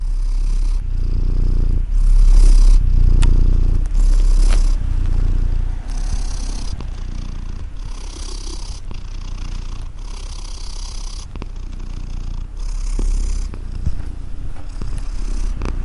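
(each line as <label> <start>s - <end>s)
A cat is purring with a low, continuous vibration. 0.0s - 15.8s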